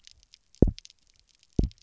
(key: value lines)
label: biophony, double pulse
recorder: SoundTrap 300